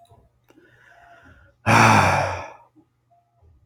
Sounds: Sigh